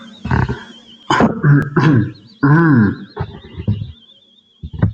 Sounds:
Throat clearing